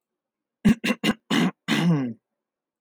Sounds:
Throat clearing